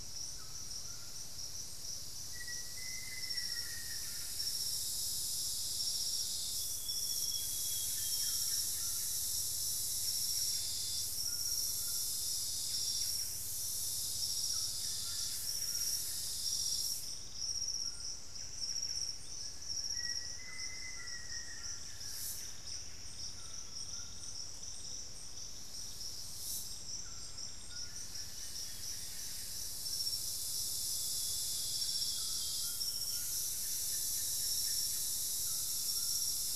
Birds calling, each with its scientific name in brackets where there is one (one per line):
Buff-breasted Wren (Cantorchilus leucotis)
Piratic Flycatcher (Legatus leucophaius)
Amazonian Grosbeak (Cyanoloxia rothschildii)
Solitary Black Cacique (Cacicus solitarius)
White-throated Toucan (Ramphastos tucanus)
Black-faced Antthrush (Formicarius analis)
unidentified bird
Olivaceous Woodcreeper (Sittasomus griseicapillus)